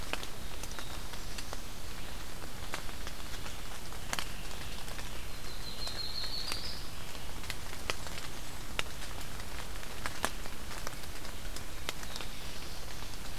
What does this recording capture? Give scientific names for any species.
Setophaga caerulescens, Setophaga coronata